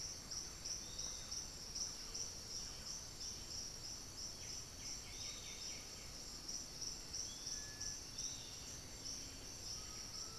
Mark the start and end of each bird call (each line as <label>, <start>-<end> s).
Thrush-like Wren (Campylorhynchus turdinus), 0.0-3.3 s
unidentified bird, 0.0-10.4 s
Piratic Flycatcher (Legatus leucophaius), 0.8-10.4 s
White-winged Becard (Pachyramphus polychopterus), 4.2-6.3 s
Undulated Tinamou (Crypturellus undulatus), 9.6-10.4 s